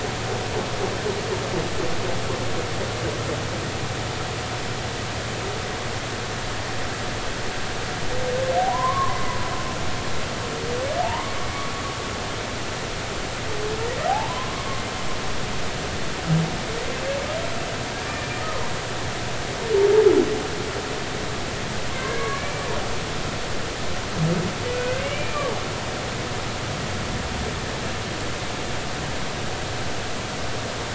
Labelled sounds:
8.7	9.2	humpback whale, 0.93 to 1.2 kHz
11.0	11.3	humpback whale, 0.80 to 1.2 kHz
14.1	14.7	humpback whale, 0.80 to 1.1 kHz
18.4	18.6	humpback whale, 1.2 to 1.3 kHz
21.9	22.7	humpback whale, 1.1 to 2.4 kHz
24.7	25.5	humpback whale, 1.4 to 3.0 kHz

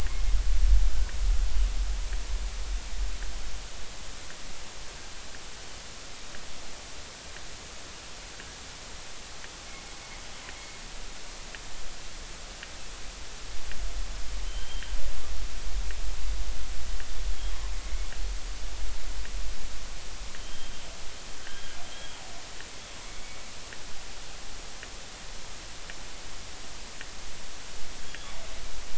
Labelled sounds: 9.7	10.0	killer whale, northern resident, G clan, GG subclan, call N23ii, 2.1 to 2.2 kHz
14.5	14.9	killer whale, northern resident, G clan, GG subclan, call N28, 3.0 to 3.2 kHz
20.4	20.7	killer whale, northern resident, G clan, GG subclan, call N28, 3.1 to 3.3 kHz
21.4	22.2	killer whale, northern resident, G clan, GG subclan, call N28, 1.5 to 3.3 kHz
28.0	28.4	killer whale, northern resident, G clan, GG subclan, call N28, 3.2 to 3.5 kHz

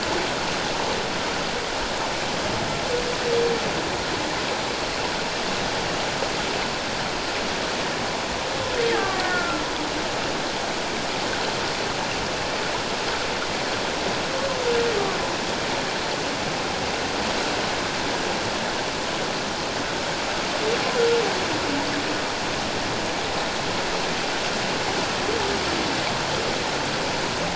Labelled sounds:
8.9	9.6	killer whale, Bigg's (transient), 1.1 to 1.9 kHz

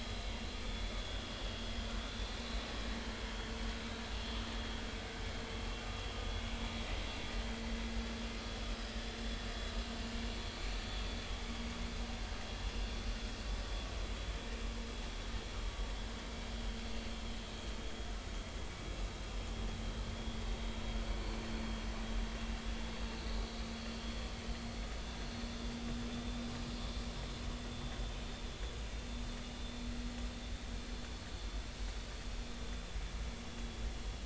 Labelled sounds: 0.6	1.2	vessel noise, 3.3 to 3.6 kHz
26.1	26.4	vessel noise, 3.5 to 3.7 kHz

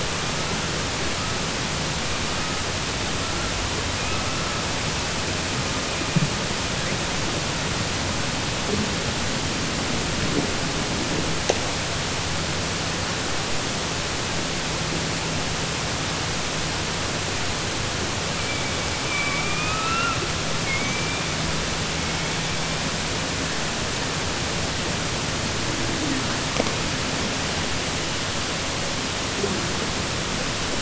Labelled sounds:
19.0	20.2	killer whale, southern resident, 1.1 to 2.8 kHz

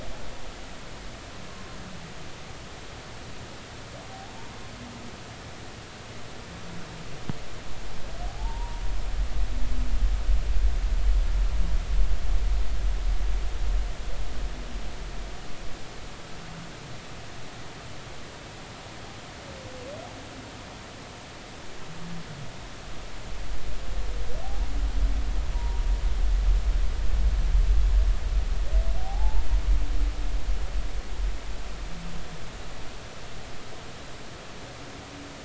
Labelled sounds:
4.1	4.4	humpback whale, 0.80 to 0.93 kHz
8.3	8.8	humpback whale, 0.80 to 1.0 kHz
25.5	25.8	humpback whale, 0.90 to 0.99 kHz
29.0	29.4	humpback whale, 0.80 to 0.96 kHz

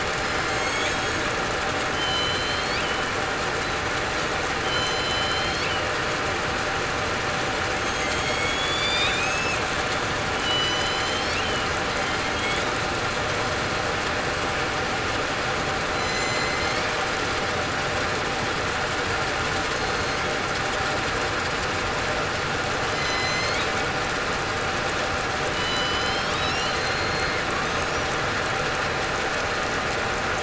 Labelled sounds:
0.4	0.8	killer whale, southern resident, 4.2 to 4.4 kHz
1.9	2.7	killer whale, southern resident, 3.0 to 3.2 kHz
4.6	5.7	killer whale, southern resident, 3.0 to 5.1 kHz
7.8	9.5	killer whale, southern resident, 2.3 to 7.3 kHz
10.3	11.8	killer whale, southern resident, 2.8 to 5.2 kHz
15.9	16.6	killer whale, southern resident, 4.0 to 6.2 kHz
19.7	20.2	killer whale, southern resident, 4.2 to 4.3 kHz
22.9	23.3	killer whale, southern resident, 5.0 to 5.1 kHz
25.5	27.4	killer whale, southern resident, 3.9 to 4.4 kHz

